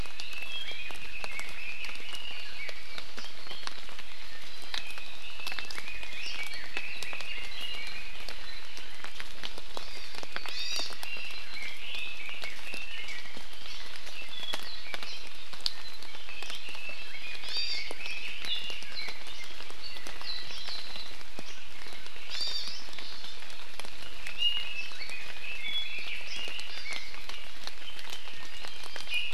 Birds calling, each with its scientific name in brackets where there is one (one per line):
Apapane (Himatione sanguinea)
Red-billed Leiothrix (Leiothrix lutea)
Hawaii Amakihi (Chlorodrepanis virens)
Iiwi (Drepanis coccinea)